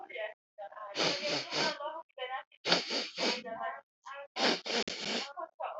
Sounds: Sniff